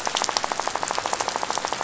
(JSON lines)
{"label": "biophony, rattle", "recorder": "SoundTrap 500"}